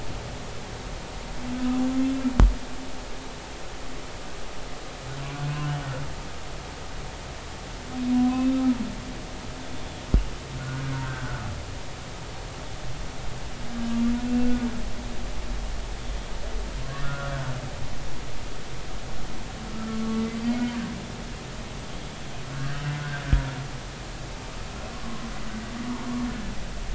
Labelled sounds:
8.1	9.6	humpback whale, 0.93 to 3.7 kHz
10.6	11.4	humpback whale, 1.3 to 1.6 kHz
14.2	14.6	humpback whale, 1.4 to 2.8 kHz
17.0	17.3	humpback whale, 1.2 to 1.6 kHz
19.7	20.0	humpback whale, 1.2 to 1.4 kHz
22.5	22.8	humpback whale, 1.4 to 1.7 kHz

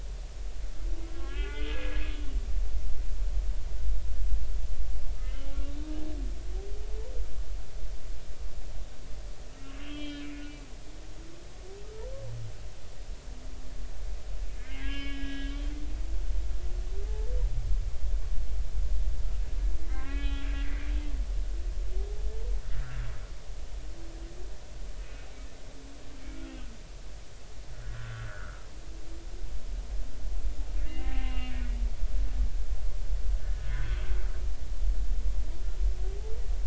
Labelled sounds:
1.0	2.0	humpback whale, 0.83 to 3.6 kHz
5.2	5.5	humpback whale, 2.8 to 3.0 kHz
9.6	10.3	humpback whale, 2.3 to 4.2 kHz
11.8	12.1	humpback whale, 1.2 to 1.4 kHz
14.5	15.7	humpback whale, 1.1 to 5.1 kHz
19.9	20.5	humpback whale, 0.99 to 3.7 kHz
25.0	25.3	humpback whale, 2.4 to 2.6 kHz
26.2	26.5	humpback whale, 1.3 to 2.3 kHz
27.7	28.7	humpback whale, 1.2 to 1.8 kHz
30.8	31.5	humpback whale, 0.80 to 2.9 kHz
33.4	34.1	humpback whale, 1.4 to 3.4 kHz

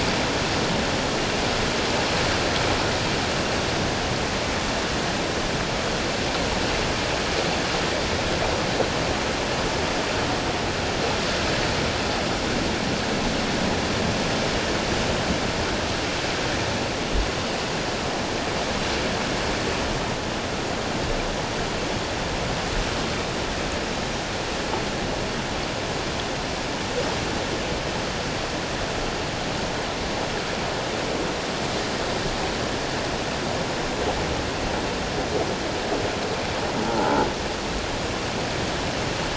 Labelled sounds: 36.8	37.3	croaking sound likely from a nearby submerged object, 0.78 to 1.5 kHz

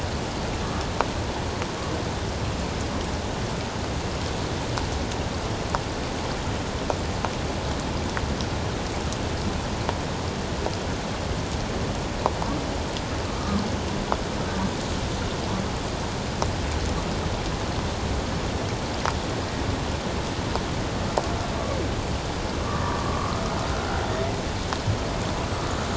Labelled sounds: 13.3	13.6	humpback whale, 1.0 to 1.3 kHz
22.6	23.3	humpback whale, 0.94 to 1.2 kHz
23.7	24.0	humpback whale, 1.3 to 1.6 kHz

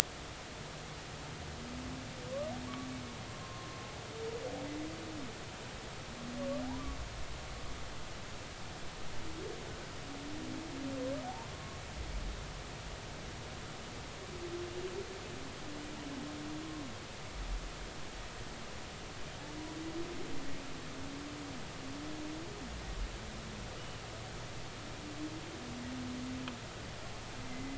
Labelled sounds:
3.4	3.7	humpback whale, 0.99 to 1.1 kHz
6.7	7.0	humpback whale, 0.80 to 1.2 kHz
11.2	11.8	humpback whale, 0.80 to 1.1 kHz
27.5	27.7	humpback whale, 2.0 to 2.1 kHz

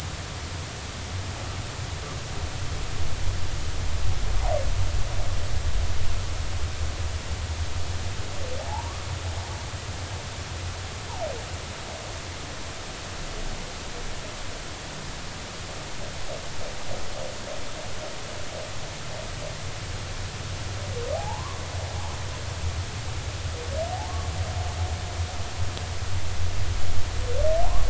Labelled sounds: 8.6	8.9	humpback whale, 0.80 to 1.1 kHz
21.1	21.6	humpback whale, 0.80 to 1.2 kHz
27.6	27.8	humpback whale, 0.80 to 1.2 kHz

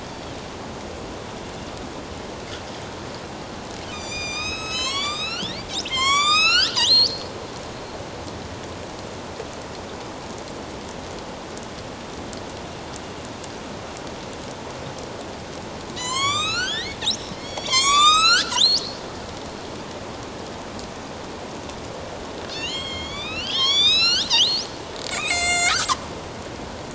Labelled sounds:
3.9	5.6	killer whale, northern resident, A clan, AB subclan, 0.97 to 8.0 kHz
5.9	7.3	killer whale, northern resident, A clan, AB subclan, 0.97 to 8.0 kHz
16.0	18.8	killer whale, northern resident, A clan, AB subclan, 0.91 to 8.0 kHz
22.5	24.7	killer whale, northern resident, A clan, AB subclan, 1.1 to 8.0 kHz
25.1	25.8	killer whale, northern resident, A clan, AB subclan, 1.3 to 8.0 kHz

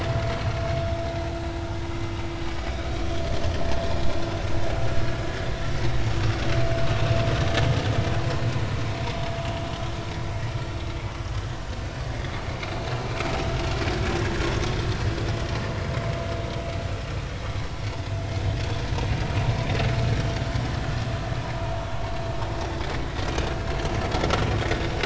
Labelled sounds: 19.6	19.8	vessel noise, 3.5 to 3.7 kHz
21.9	22.2	vessel noise, 1.0 to 1.2 kHz

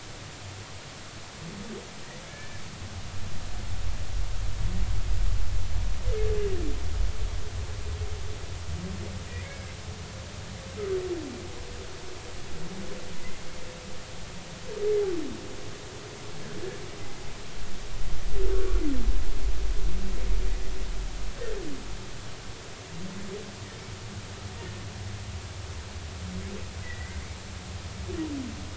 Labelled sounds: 2.3	2.6	humpback whale, 1.6 to 1.8 kHz
9.3	9.7	humpback whale, 1.6 to 2.3 kHz
18.5	18.8	humpback whale, 1.1 to 1.5 kHz
26.8	27.2	humpback whale, 1.9 to 2.1 kHz

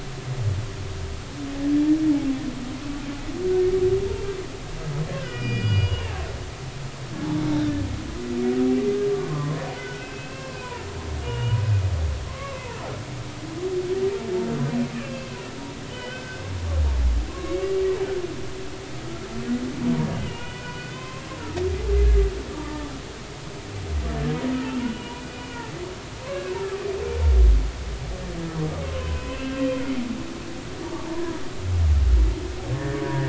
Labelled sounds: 5.2	6.2	humpback whale, 1.4 to 5.3 kHz
9.1	11.6	humpback whale, 0.90 to 3.1 kHz
12.3	12.8	humpback whale, 0.83 to 1.2 kHz
15.0	15.3	humpback whale, 2.6 to 2.8 kHz
15.9	16.4	humpback whale, 1.4 to 3.1 kHz
17.3	17.7	humpback whale, 0.99 to 2.8 kHz
20.2	21.4	humpback whale, 0.90 to 3.2 kHz
22.5	22.9	humpback whale, 0.86 to 1.2 kHz
24.8	25.1	humpback whale, 2.8 to 3.0 kHz
26.3	26.5	humpback whale, 1.6 to 1.7 kHz
28.8	29.6	humpback whale, 0.96 to 2.7 kHz
30.8	31.2	humpback whale, 0.83 to 1.1 kHz
32.7	33.2	humpback whale, 1.6 to 1.9 kHz

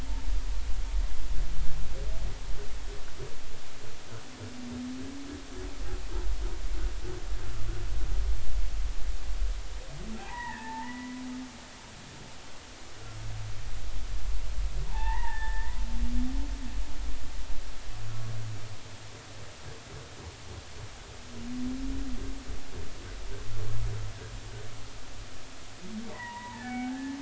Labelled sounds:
10.2	11.2	humpback whale, 0.80 to 2.0 kHz
14.9	15.8	humpback whale, 0.80 to 2.1 kHz
26.1	27.2	humpback whale, 0.80 to 2.3 kHz

